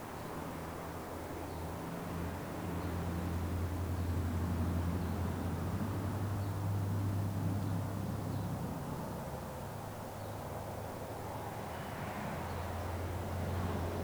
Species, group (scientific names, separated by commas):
Chorthippus vagans, Orthoptera